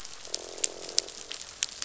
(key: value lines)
label: biophony, croak
recorder: SoundTrap 500